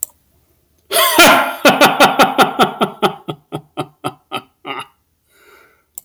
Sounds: Laughter